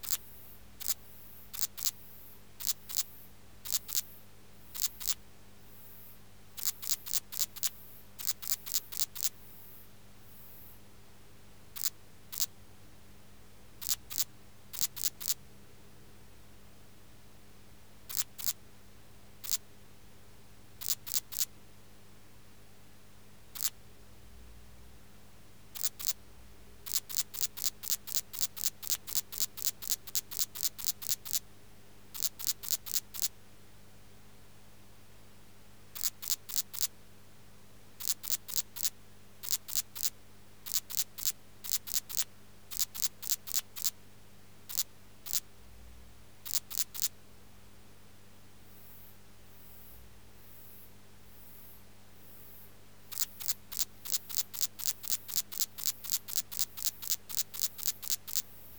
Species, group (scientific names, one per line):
Tessellana lagrecai
Orthoptera